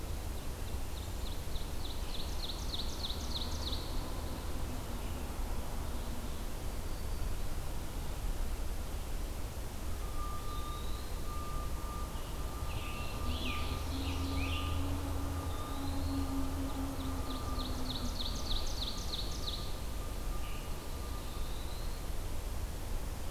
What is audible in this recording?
Ovenbird, Black-throated Green Warbler, Eastern Wood-Pewee, Scarlet Tanager